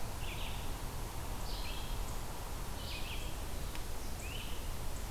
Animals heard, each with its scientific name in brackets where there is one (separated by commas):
Great Crested Flycatcher (Myiarchus crinitus), Red-eyed Vireo (Vireo olivaceus)